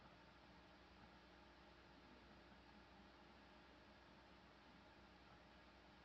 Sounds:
Sneeze